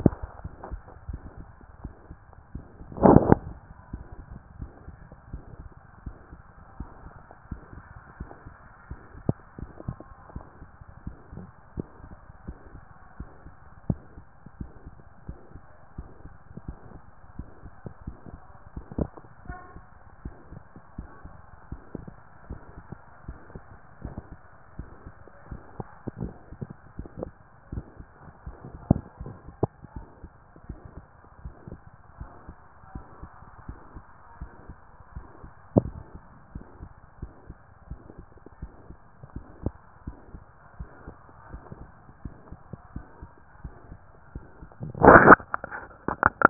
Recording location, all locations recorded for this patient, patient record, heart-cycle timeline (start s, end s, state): mitral valve (MV)
aortic valve (AV)+pulmonary valve (PV)+tricuspid valve (TV)+mitral valve (MV)
#Age: Adolescent
#Sex: Male
#Height: 180.0 cm
#Weight: 103.3 kg
#Pregnancy status: False
#Murmur: Present
#Murmur locations: mitral valve (MV)+pulmonary valve (PV)+tricuspid valve (TV)
#Most audible location: tricuspid valve (TV)
#Systolic murmur timing: Holosystolic
#Systolic murmur shape: Plateau
#Systolic murmur grading: I/VI
#Systolic murmur pitch: Low
#Systolic murmur quality: Blowing
#Diastolic murmur timing: nan
#Diastolic murmur shape: nan
#Diastolic murmur grading: nan
#Diastolic murmur pitch: nan
#Diastolic murmur quality: nan
#Outcome: Abnormal
#Campaign: 2014 screening campaign
0.00	11.76	unannotated
11.76	11.88	S1
11.88	12.04	systole
12.04	12.16	S2
12.16	12.46	diastole
12.46	12.58	S1
12.58	12.74	systole
12.74	12.84	S2
12.84	13.18	diastole
13.18	13.30	S1
13.30	13.44	systole
13.44	13.54	S2
13.54	13.88	diastole
13.88	14.00	S1
14.00	14.16	systole
14.16	14.26	S2
14.26	14.60	diastole
14.60	14.70	S1
14.70	14.86	systole
14.86	14.96	S2
14.96	15.26	diastole
15.26	15.38	S1
15.38	15.54	systole
15.54	15.64	S2
15.64	15.96	diastole
15.96	16.08	S1
16.08	16.24	systole
16.24	16.34	S2
16.34	16.66	diastole
16.66	16.78	S1
16.78	16.92	systole
16.92	17.02	S2
17.02	17.38	diastole
17.38	17.48	S1
17.48	17.62	systole
17.62	17.72	S2
17.72	18.06	diastole
18.06	18.16	S1
18.16	18.32	systole
18.32	18.40	S2
18.40	18.74	diastole
18.74	18.86	S1
18.86	19.01	systole
19.01	19.10	S2
19.10	19.46	diastole
19.46	19.58	S1
19.58	19.74	systole
19.74	19.84	S2
19.84	20.24	diastole
20.24	20.36	S1
20.36	20.50	systole
20.50	20.62	S2
20.62	20.98	diastole
20.98	21.08	S1
21.08	21.24	systole
21.24	21.36	S2
21.36	21.70	diastole
21.70	21.82	S1
21.82	21.98	systole
21.98	22.10	S2
22.10	22.48	diastole
22.48	22.60	S1
22.60	22.78	systole
22.78	22.86	S2
22.86	23.26	diastole
23.26	23.38	S1
23.38	23.54	systole
23.54	23.64	S2
23.64	24.04	diastole
24.04	24.16	S1
24.16	24.32	systole
24.32	24.40	S2
24.40	24.78	diastole
24.78	24.88	S1
24.88	25.04	systole
25.04	25.14	S2
25.14	25.50	diastole
25.50	46.50	unannotated